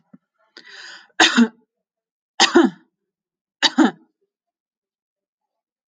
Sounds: Cough